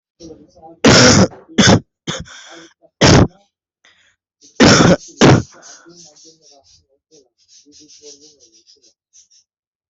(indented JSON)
{
  "expert_labels": [
    {
      "quality": "ok",
      "cough_type": "wet",
      "dyspnea": false,
      "wheezing": false,
      "stridor": false,
      "choking": false,
      "congestion": false,
      "nothing": true,
      "diagnosis": "COVID-19",
      "severity": "mild"
    }
  ],
  "gender": "female",
  "respiratory_condition": true,
  "fever_muscle_pain": true,
  "status": "COVID-19"
}